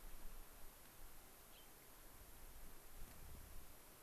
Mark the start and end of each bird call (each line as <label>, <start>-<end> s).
Gray-crowned Rosy-Finch (Leucosticte tephrocotis), 1.5-1.7 s